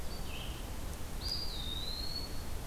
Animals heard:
Eastern Wood-Pewee (Contopus virens), Red-eyed Vireo (Vireo olivaceus)

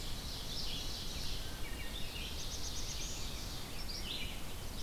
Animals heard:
Ovenbird (Seiurus aurocapilla), Red-eyed Vireo (Vireo olivaceus), Black-throated Blue Warbler (Setophaga caerulescens), Wood Thrush (Hylocichla mustelina)

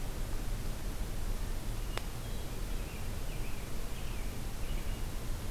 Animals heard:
American Robin (Turdus migratorius), Hermit Thrush (Catharus guttatus)

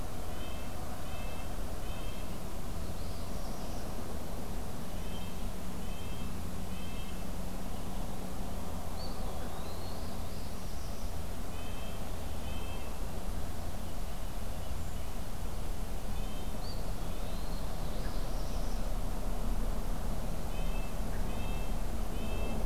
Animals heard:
Eastern Wood-Pewee (Contopus virens), Northern Parula (Setophaga americana), Red-breasted Nuthatch (Sitta canadensis)

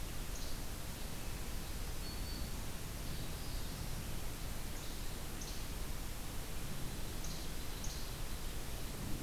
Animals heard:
Black-throated Green Warbler (Setophaga virens), Least Flycatcher (Empidonax minimus), Northern Parula (Setophaga americana)

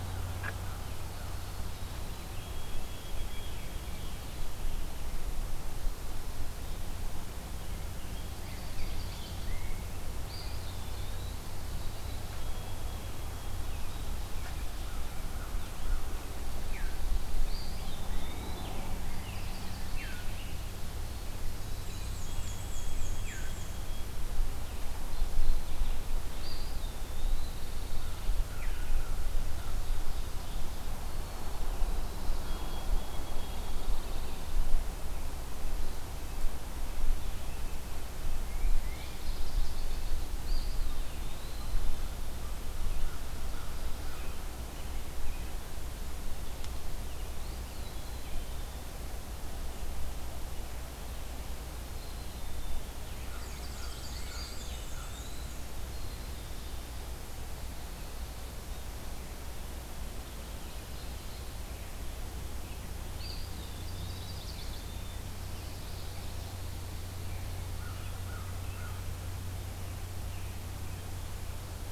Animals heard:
Pine Warbler (Setophaga pinus), Black-capped Chickadee (Poecile atricapillus), White-throated Sparrow (Zonotrichia albicollis), American Crow (Corvus brachyrhynchos), Chestnut-sided Warbler (Setophaga pensylvanica), Eastern Wood-Pewee (Contopus virens), Black-and-white Warbler (Mniotilta varia)

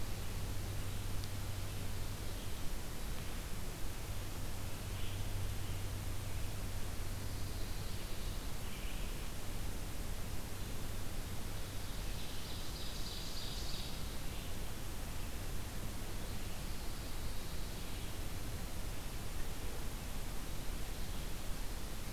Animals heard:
Ovenbird (Seiurus aurocapilla), Pine Warbler (Setophaga pinus), Red-eyed Vireo (Vireo olivaceus)

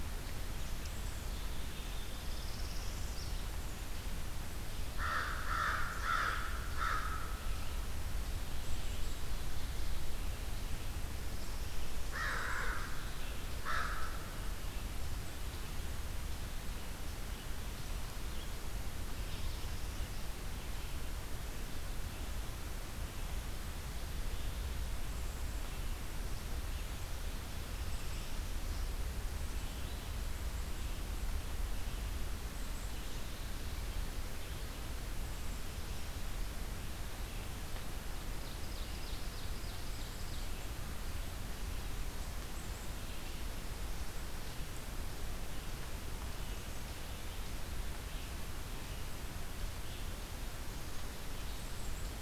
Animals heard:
Northern Parula (Setophaga americana), Red-eyed Vireo (Vireo olivaceus), Black-capped Chickadee (Poecile atricapillus), Ovenbird (Seiurus aurocapilla), American Crow (Corvus brachyrhynchos)

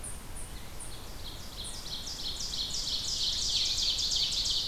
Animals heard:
Ovenbird (Seiurus aurocapilla), unknown mammal

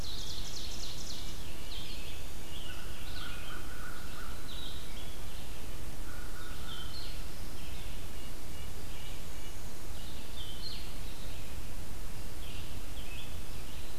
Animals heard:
Ovenbird (Seiurus aurocapilla), American Crow (Corvus brachyrhynchos), Red-eyed Vireo (Vireo olivaceus), Red-breasted Nuthatch (Sitta canadensis), Blue-headed Vireo (Vireo solitarius)

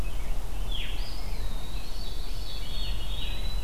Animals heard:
White-throated Sparrow (Zonotrichia albicollis), Veery (Catharus fuscescens), Rose-breasted Grosbeak (Pheucticus ludovicianus), Eastern Wood-Pewee (Contopus virens)

